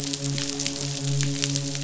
{"label": "biophony, midshipman", "recorder": "SoundTrap 500"}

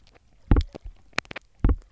{"label": "biophony, knock", "recorder": "SoundTrap 300"}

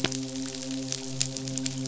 {"label": "biophony, midshipman", "recorder": "SoundTrap 500"}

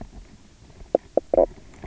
{"label": "biophony, knock croak", "recorder": "SoundTrap 300"}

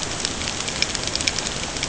{"label": "ambient", "recorder": "HydroMoth"}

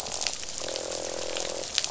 {"label": "biophony, croak", "recorder": "SoundTrap 500"}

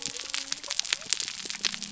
{"label": "biophony", "recorder": "SoundTrap 300"}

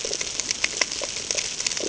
{"label": "ambient", "recorder": "HydroMoth"}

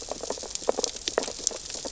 {"label": "biophony, sea urchins (Echinidae)", "recorder": "SoundTrap 600 or HydroMoth"}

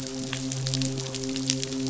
{"label": "biophony, midshipman", "recorder": "SoundTrap 500"}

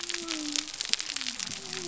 {"label": "biophony", "recorder": "SoundTrap 300"}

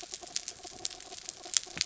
{"label": "anthrophony, mechanical", "recorder": "SoundTrap 300"}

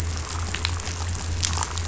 {"label": "anthrophony, boat engine", "recorder": "SoundTrap 500"}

